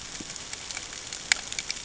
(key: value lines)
label: ambient
recorder: HydroMoth